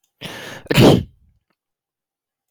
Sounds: Sneeze